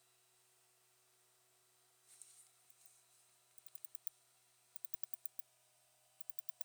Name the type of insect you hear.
orthopteran